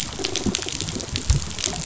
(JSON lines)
{"label": "biophony", "recorder": "SoundTrap 500"}